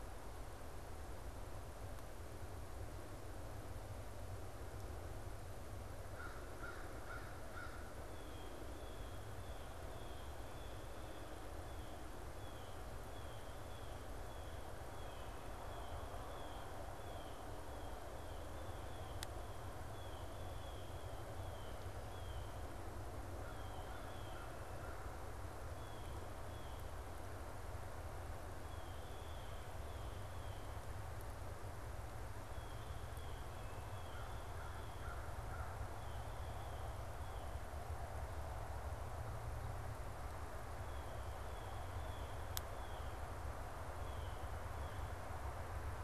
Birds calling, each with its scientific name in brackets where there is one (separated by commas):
American Crow (Corvus brachyrhynchos), Blue Jay (Cyanocitta cristata)